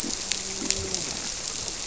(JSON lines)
{"label": "biophony, grouper", "recorder": "SoundTrap 300"}